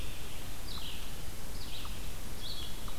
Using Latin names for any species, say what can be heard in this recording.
Vireo olivaceus, unknown mammal